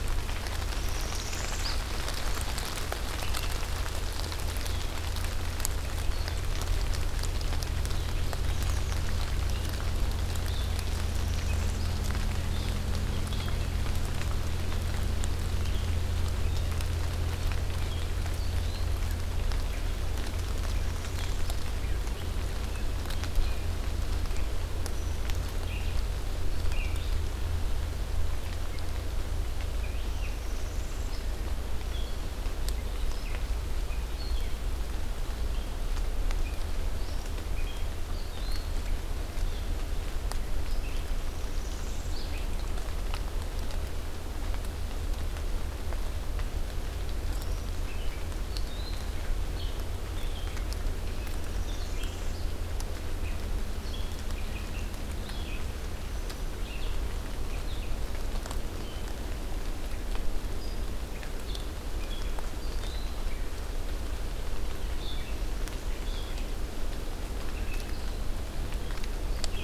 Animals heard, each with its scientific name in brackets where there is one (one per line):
Northern Parula (Setophaga americana)
American Redstart (Setophaga ruticilla)
Red-eyed Vireo (Vireo olivaceus)